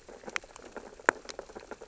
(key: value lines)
label: biophony, sea urchins (Echinidae)
recorder: SoundTrap 600 or HydroMoth